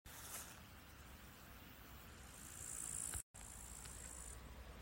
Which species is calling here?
Tettigonia cantans